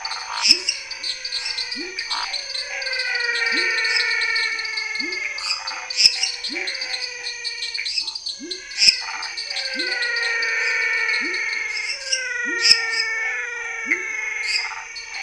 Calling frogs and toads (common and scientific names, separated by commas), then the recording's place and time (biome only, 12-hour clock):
waxy monkey tree frog (Phyllomedusa sauvagii), lesser tree frog (Dendropsophus minutus), dwarf tree frog (Dendropsophus nanus), menwig frog (Physalaemus albonotatus), Scinax fuscovarius, pepper frog (Leptodactylus labyrinthicus), Chaco tree frog (Boana raniceps), Pithecopus azureus
Cerrado, 8:30pm